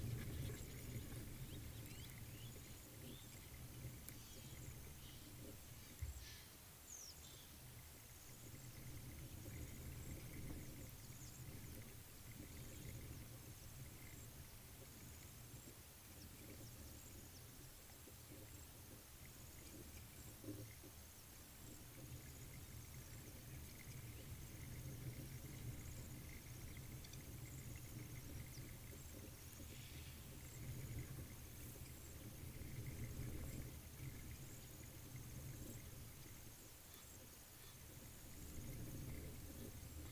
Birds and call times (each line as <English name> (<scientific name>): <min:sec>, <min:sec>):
Blacksmith Lapwing (Vanellus armatus): 0:02.0
Egyptian Goose (Alopochen aegyptiaca): 0:04.3
Western Yellow Wagtail (Motacilla flava): 0:07.0